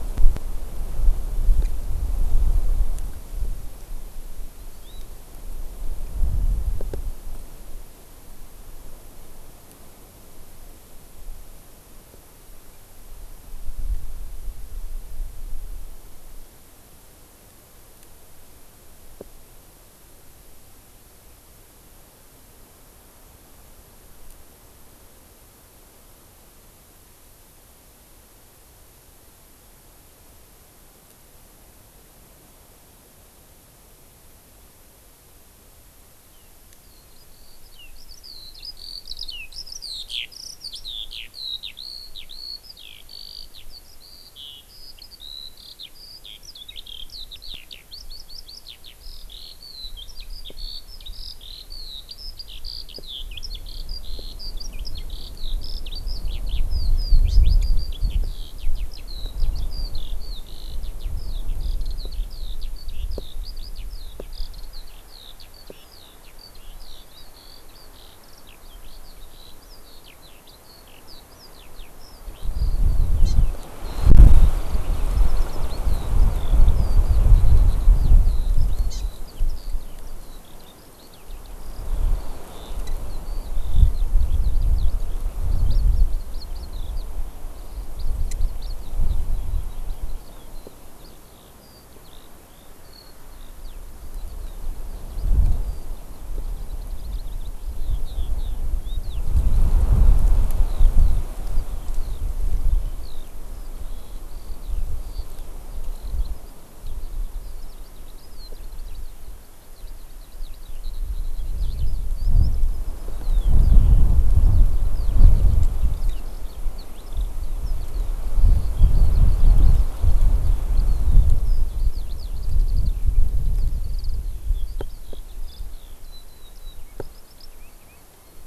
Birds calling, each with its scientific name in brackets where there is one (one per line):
Hawaii Amakihi (Chlorodrepanis virens)
Eurasian Skylark (Alauda arvensis)